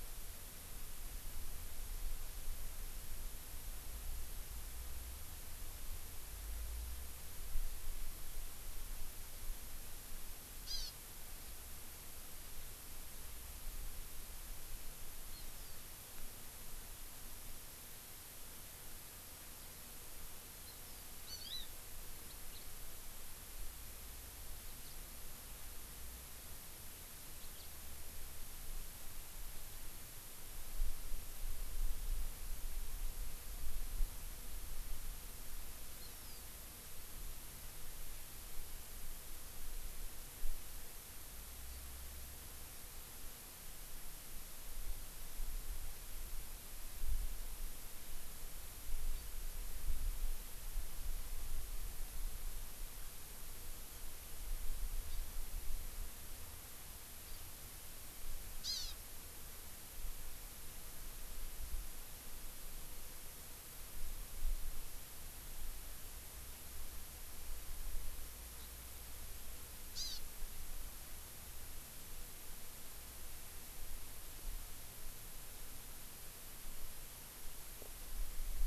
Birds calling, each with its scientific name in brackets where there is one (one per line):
House Finch (Haemorhous mexicanus)
Hawaii Amakihi (Chlorodrepanis virens)